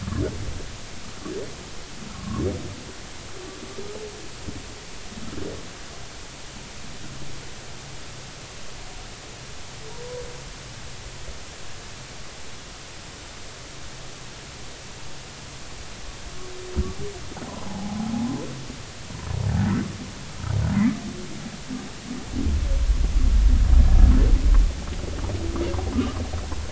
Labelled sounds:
2.1	2.4	humpback whale, 0.99 to 1.2 kHz
17.5	18.0	humpback whale, 0.80 to 1.1 kHz

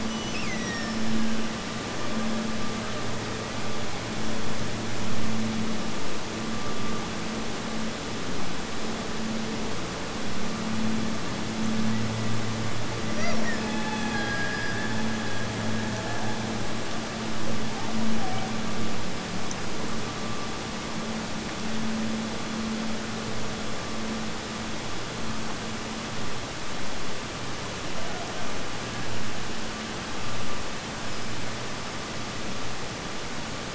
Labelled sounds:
0.0	1.7	killer whale, Bigg's (transient), Gulf of Alaska transient, 1.4 to 8.0 kHz
13.0	16.7	killer whale, Bigg's (transient), Gulf of Alaska transient, 0.44 to 6.7 kHz

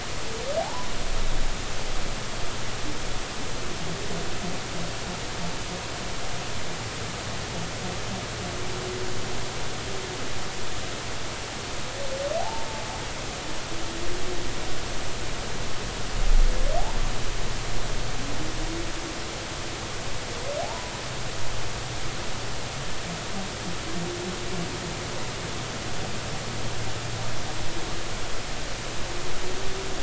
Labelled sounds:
0.6	0.9	humpback whale, 0.80 to 1.1 kHz
12.4	12.7	humpback whale, 0.80 to 0.96 kHz
20.6	20.9	humpback whale, 0.80 to 1.0 kHz

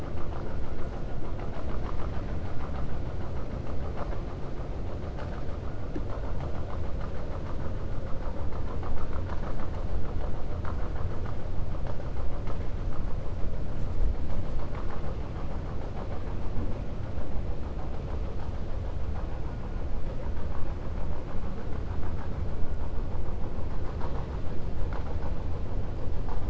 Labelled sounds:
1.2	2.3	vessel noise, 0.65 to 3.9 kHz

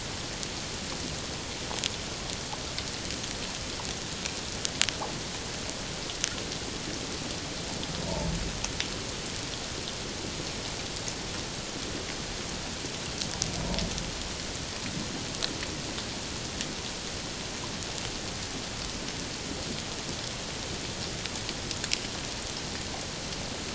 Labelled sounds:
8.0	8.3	humpback whale, 0.84 to 1.0 kHz

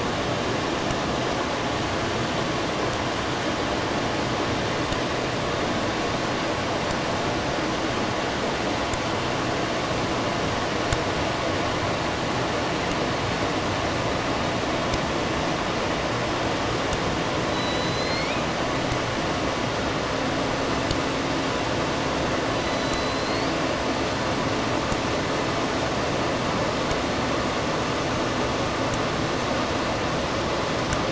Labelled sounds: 17.2	18.7	killer whale, southern resident, J pod, call S01, 1.6 to 7.2 kHz
22.3	23.7	killer whale, southern resident, J pod, call S01, 1.6 to 7.6 kHz

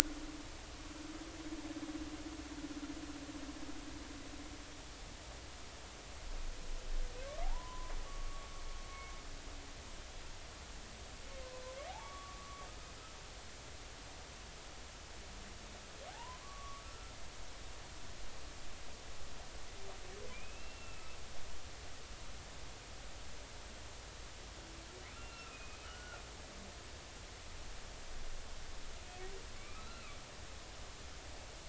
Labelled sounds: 7.4	8.5	humpback whale, 0.80 to 1.2 kHz
13.0	13.7	humpback whale, 1.1 to 1.2 kHz
16.1	17.1	humpback whale, 0.80 to 1.5 kHz
20.3	21.2	humpback whale, 2.3 to 2.8 kHz
25.2	26.2	humpback whale, 1.2 to 2.8 kHz
29.6	30.2	humpback whale, 1.1 to 2.9 kHz

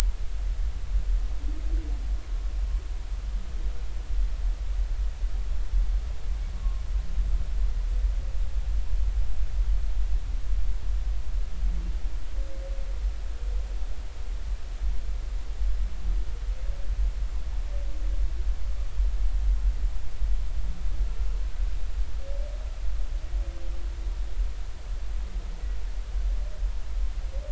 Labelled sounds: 6.5	6.8	humpback whale, 1.0 to 1.2 kHz

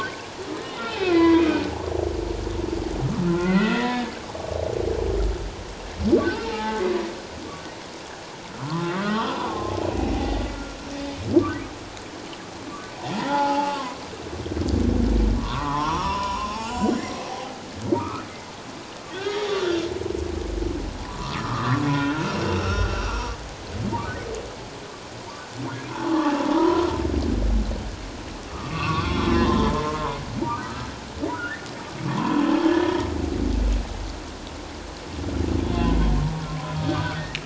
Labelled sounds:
0.0	1.7	humpback whale, 0.94 to 3.4 kHz
3.3	4.1	humpback whale, 0.94 to 2.7 kHz
6.4	6.8	humpback whale, 0.81 to 1.3 kHz
8.6	9.7	humpback whale, 0.78 to 3.5 kHz
10.1	10.4	humpback whale, 0.78 to 2.1 kHz
11.4	11.7	humpback whale, 1.1 to 1.3 kHz
13.2	14.0	humpback whale, 0.78 to 2.9 kHz
15.4	17.6	humpback whale, 0.78 to 7.2 kHz
18.0	18.3	humpback whale, 1.0 to 1.5 kHz
19.1	19.9	humpback whale, 1.3 to 3.9 kHz
21.0	23.3	humpback whale, 0.94 to 5.8 kHz
25.9	26.9	humpback whale, 0.78 to 1.2 kHz
28.5	30.9	humpback whale, 0.88 to 3.9 kHz
31.3	31.7	humpback whale, 1.2 to 1.9 kHz
32.0	32.9	humpback whale, 0.84 to 1.8 kHz
35.7	36.0	humpback whale, 3.0 to 3.6 kHz
36.5	37.2	humpback whale, 0.97 to 1.7 kHz

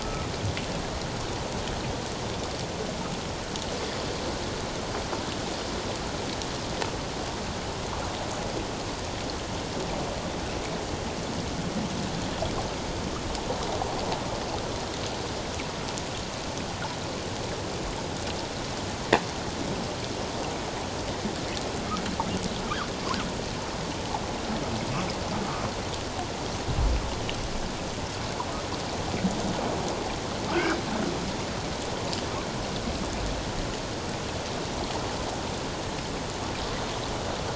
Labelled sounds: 0.0	0.3	humpback whale, 1.2 to 1.4 kHz
30.5	30.8	humpback whale, 1.1 to 1.7 kHz

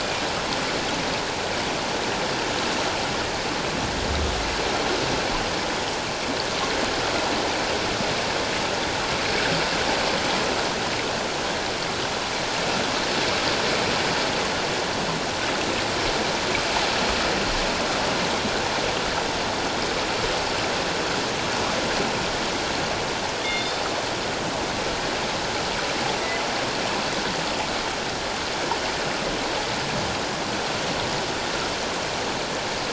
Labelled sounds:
23.4	23.8	killer whale, northern resident, G clan, call N24ii, 3.4 to 3.7 kHz

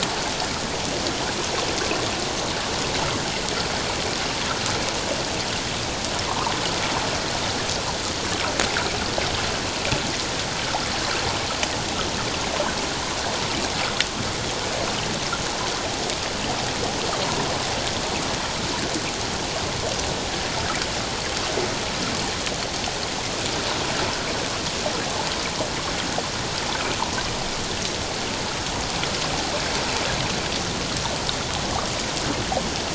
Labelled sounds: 6.3	6.5	water noise, 0.84 to 1.3 kHz

